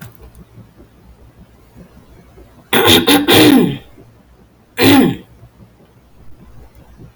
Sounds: Throat clearing